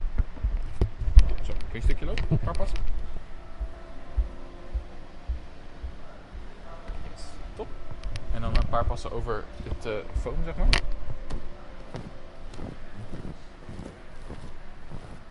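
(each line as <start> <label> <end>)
6.6 Someone is speaking with background noise. 11.2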